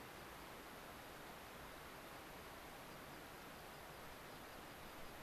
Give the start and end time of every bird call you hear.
0.0s-5.2s: American Pipit (Anthus rubescens)

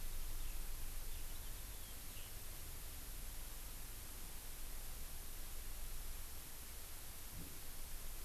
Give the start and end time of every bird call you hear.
0.0s-2.3s: Eurasian Skylark (Alauda arvensis)

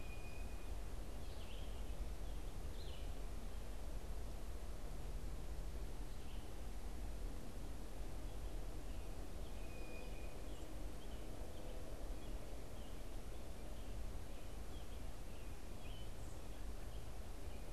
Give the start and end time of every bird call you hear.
0.0s-1.3s: Blue Jay (Cyanocitta cristata)
0.0s-3.2s: Red-eyed Vireo (Vireo olivaceus)
8.7s-17.7s: American Robin (Turdus migratorius)
9.3s-10.6s: Blue Jay (Cyanocitta cristata)

